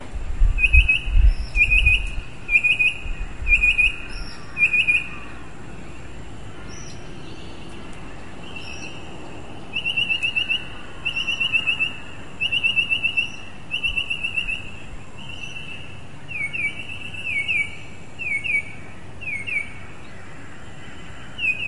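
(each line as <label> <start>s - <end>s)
A bird calls loudly and rhythmically. 0.3s - 5.1s
A bird calls rhythmically. 9.7s - 14.8s
Bird calls from a distance with rhythmic replies from nearby. 15.3s - 19.7s
An incomplete bird call. 21.3s - 21.7s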